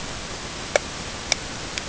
{"label": "ambient", "recorder": "HydroMoth"}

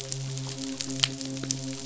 {"label": "biophony, midshipman", "recorder": "SoundTrap 500"}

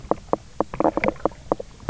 {"label": "biophony, knock croak", "recorder": "SoundTrap 300"}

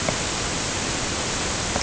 {"label": "ambient", "recorder": "HydroMoth"}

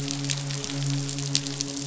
{"label": "biophony, midshipman", "recorder": "SoundTrap 500"}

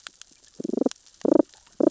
{"label": "biophony, damselfish", "recorder": "SoundTrap 600 or HydroMoth"}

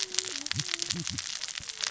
{"label": "biophony, cascading saw", "recorder": "SoundTrap 600 or HydroMoth"}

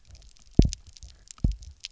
{"label": "biophony, double pulse", "recorder": "SoundTrap 300"}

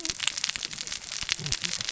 {"label": "biophony, cascading saw", "recorder": "SoundTrap 600 or HydroMoth"}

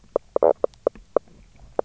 {"label": "biophony, knock croak", "recorder": "SoundTrap 300"}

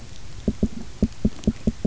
{"label": "biophony, knock", "recorder": "SoundTrap 300"}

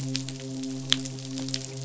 {"label": "biophony, midshipman", "recorder": "SoundTrap 500"}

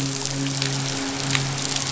{"label": "biophony, midshipman", "recorder": "SoundTrap 500"}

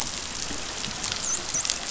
{"label": "biophony, dolphin", "recorder": "SoundTrap 500"}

